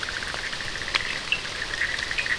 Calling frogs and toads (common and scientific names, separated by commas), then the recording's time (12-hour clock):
Bischoff's tree frog (Boana bischoffi), Cochran's lime tree frog (Sphaenorhynchus surdus)
2:00am